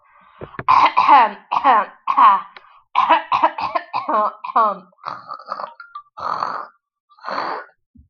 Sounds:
Throat clearing